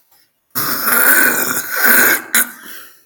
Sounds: Throat clearing